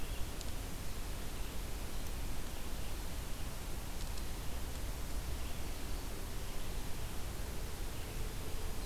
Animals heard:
forest ambience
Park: Marsh-Billings-Rockefeller National Historical Park